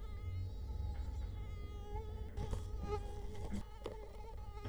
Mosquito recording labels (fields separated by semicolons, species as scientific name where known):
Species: Culex quinquefasciatus; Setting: cup